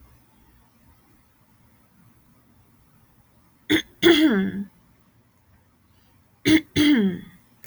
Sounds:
Throat clearing